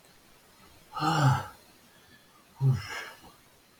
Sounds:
Sigh